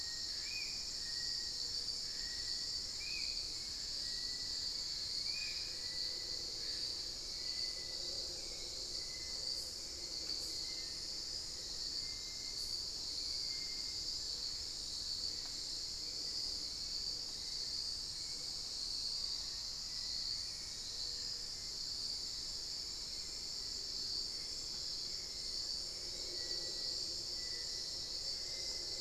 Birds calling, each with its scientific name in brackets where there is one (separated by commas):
Hauxwell's Thrush (Turdus hauxwelli), Black-faced Antthrush (Formicarius analis), unidentified bird, Spot-winged Antshrike (Pygiptila stellaris), Little Tinamou (Crypturellus soui)